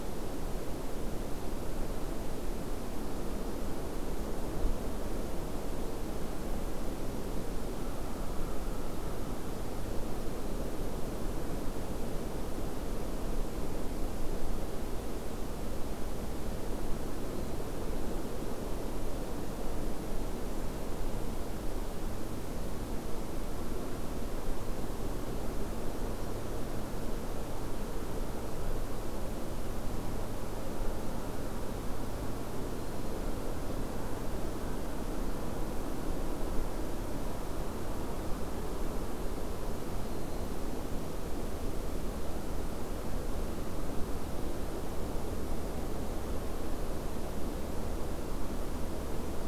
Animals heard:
forest ambience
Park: Acadia National Park